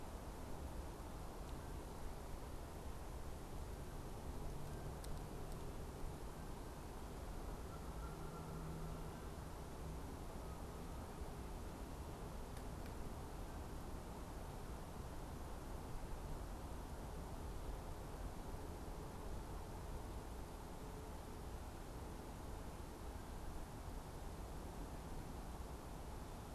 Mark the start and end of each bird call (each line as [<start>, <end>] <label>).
[7.50, 9.50] Canada Goose (Branta canadensis)